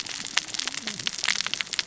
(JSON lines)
{"label": "biophony, cascading saw", "recorder": "SoundTrap 600 or HydroMoth"}